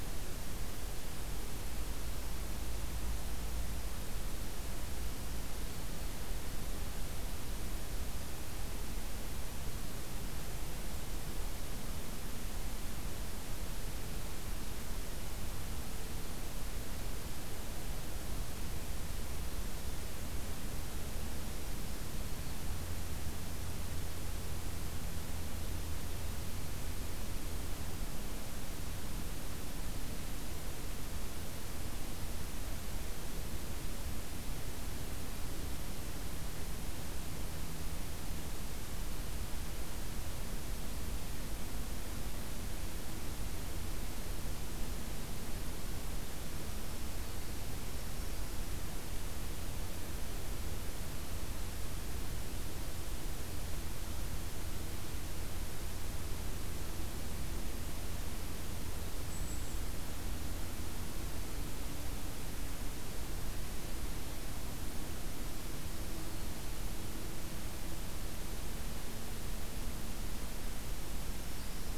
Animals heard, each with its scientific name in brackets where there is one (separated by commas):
Black-throated Green Warbler (Setophaga virens), Golden-crowned Kinglet (Regulus satrapa)